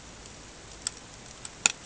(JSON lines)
{"label": "ambient", "recorder": "HydroMoth"}